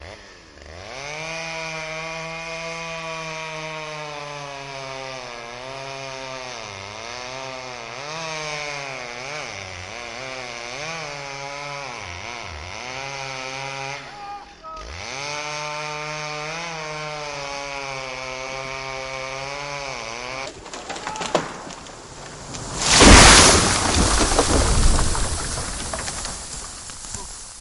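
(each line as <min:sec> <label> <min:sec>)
0:00.0 A chainsaw cutting down a tree with the chain rattling and the motor roaring. 0:20.5
0:20.5 A tree falls with wood cracking noises. 0:27.6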